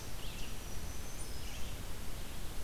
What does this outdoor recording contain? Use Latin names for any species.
Vireo olivaceus, Setophaga virens